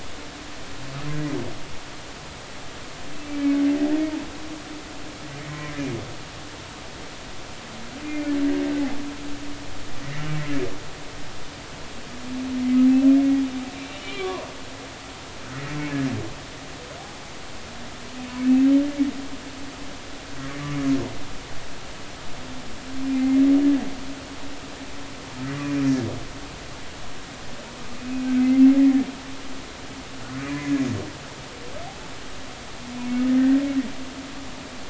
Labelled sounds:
3.2	3.6	humpback whale, 2.2 to 2.4 kHz
5.4	5.7	humpback whale, 1.8 to 2.3 kHz
8.0	8.3	humpback whale, 2.0 to 2.5 kHz
10.0	10.3	humpback whale, 1.7 to 2.3 kHz
13.8	14.5	humpback whale, 0.90 to 3.0 kHz
23.1	23.4	humpback whale, 2.0 to 2.2 kHz
28.0	28.3	humpback whale, 2.4 to 2.6 kHz
28.8	29.1	humpback whale, 1.7 to 2.0 kHz
30.4	30.7	humpback whale, 1.9 to 2.2 kHz
33.4	33.6	humpback whale, 1.8 to 1.9 kHz

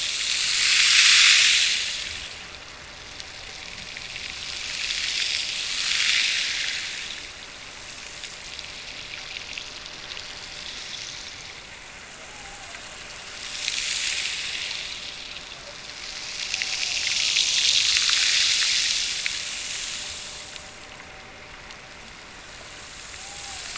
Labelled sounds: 12.1	13.0	killer whale, Bigg's (transient), Gulf of Alaska transient, 0.48 to 0.91 kHz
23.1	23.7	killer whale, Bigg's (transient), Gulf of Alaska transient, 0.57 to 1.0 kHz

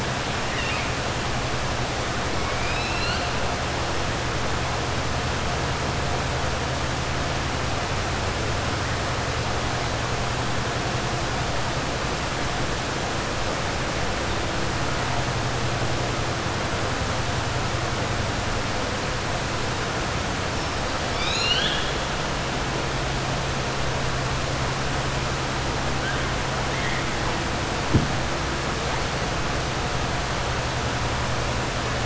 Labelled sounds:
0.4	0.9	killer whale, 1.3 to 3.8 kHz
2.4	3.3	killer whale, 1.4 to 5.4 kHz
21.0	22.0	killer whale, 1.5 to 6.9 kHz

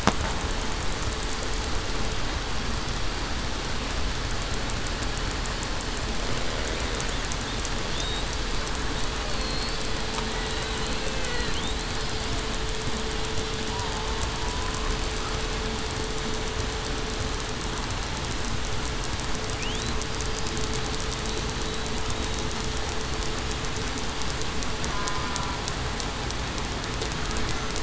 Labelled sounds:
9.3	9.7	killer whale, southern resident, 4.2 to 4.4 kHz
10.4	10.8	killer whale, southern resident, 3.8 to 4.0 kHz
13.7	14.1	killer whale, southern resident, 0.84 to 1.0 kHz
24.9	25.3	killer whale, southern resident, 0.98 to 1.2 kHz

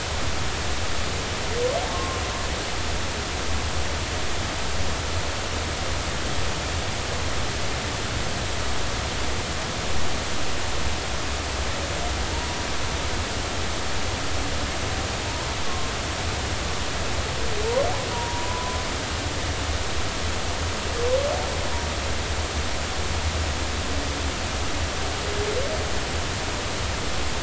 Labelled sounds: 1.9	2.2	humpback whale, 1.0 to 1.1 kHz
15.7	15.9	humpback whale, 1.0 to 1.1 kHz
18.1	18.8	humpback whale, 0.90 to 1.1 kHz

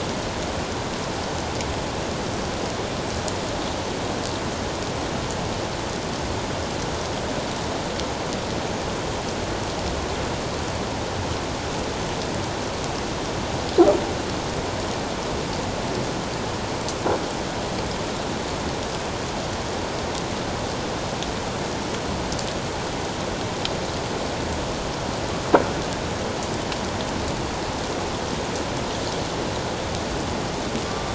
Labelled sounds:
30.9	31.1	killer whale, northern resident, 1.1 to 1.2 kHz

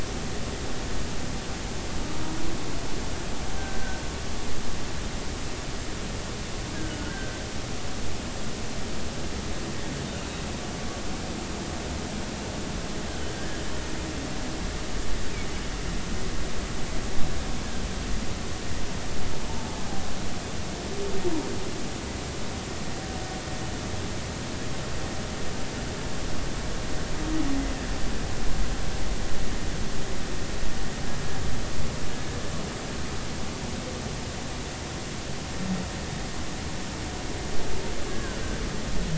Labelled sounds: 3.6	4.0	humpback whale, 1.5 to 1.6 kHz
6.7	7.4	humpback whale, 1.4 to 1.7 kHz
13.3	13.6	humpback whale, 1.5 to 1.8 kHz
19.5	19.8	humpback whale, 0.83 to 0.96 kHz
38.1	38.4	humpback whale, 1.4 to 1.7 kHz

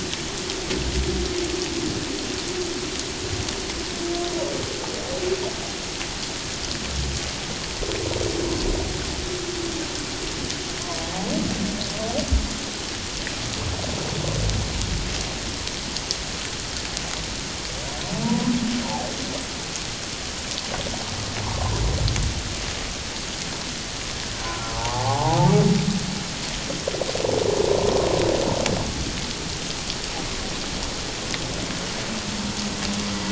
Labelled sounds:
18.2	18.5	humpback whale, 0.88 to 1.1 kHz
21.4	21.8	humpback whale, 0.88 to 1.1 kHz
24.5	25.5	humpback whale, 0.78 to 1.5 kHz

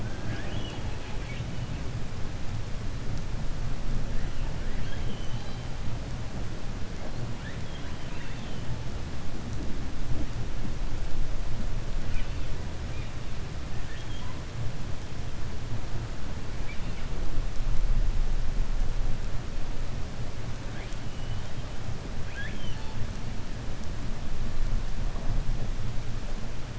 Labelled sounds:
0.0	1.4	killer whale, 0.74 to 5.1 kHz
4.6	5.6	killer whale, 1.5 to 6.1 kHz
8.0	8.6	killer whale, 0.97 to 4.5 kHz
22.2	22.9	killer whale, 0.90 to 6.0 kHz

